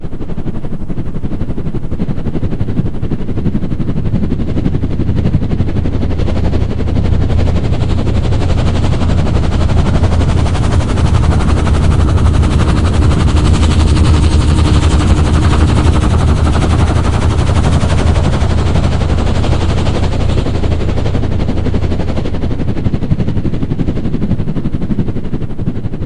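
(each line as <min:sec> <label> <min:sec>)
0:00.0 A helicopter is flying by. 0:26.1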